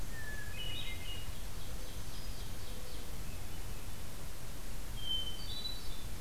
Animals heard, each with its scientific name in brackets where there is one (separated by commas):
Hermit Thrush (Catharus guttatus), Ovenbird (Seiurus aurocapilla)